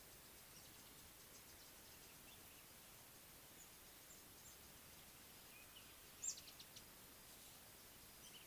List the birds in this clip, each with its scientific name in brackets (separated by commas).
Speckled Mousebird (Colius striatus)